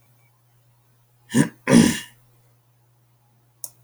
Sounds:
Throat clearing